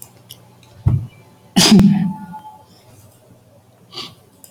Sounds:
Sneeze